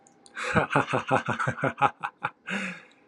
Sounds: Laughter